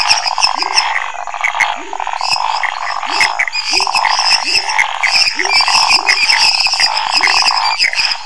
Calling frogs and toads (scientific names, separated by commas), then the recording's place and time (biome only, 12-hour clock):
Dendropsophus nanus, Physalaemus albonotatus, Phyllomedusa sauvagii, Scinax fuscovarius, Leptodactylus labyrinthicus, Pithecopus azureus, Dendropsophus minutus
Cerrado, 10:15pm